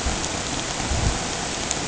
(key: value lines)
label: ambient
recorder: HydroMoth